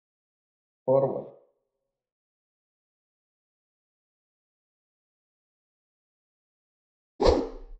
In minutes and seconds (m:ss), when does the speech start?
0:01